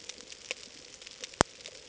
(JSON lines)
{"label": "ambient", "recorder": "HydroMoth"}